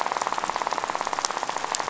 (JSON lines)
{"label": "biophony, rattle", "recorder": "SoundTrap 500"}